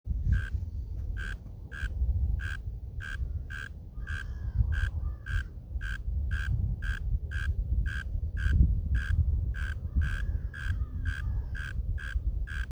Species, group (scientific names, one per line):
Neocurtilla hexadactyla
Orthoptera